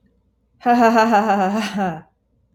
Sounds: Laughter